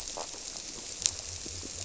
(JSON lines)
{"label": "biophony", "recorder": "SoundTrap 300"}